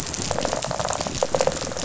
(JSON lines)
{"label": "biophony, rattle response", "recorder": "SoundTrap 500"}